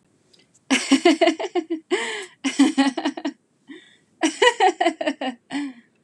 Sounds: Laughter